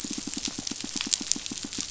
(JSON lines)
{"label": "biophony, pulse", "recorder": "SoundTrap 500"}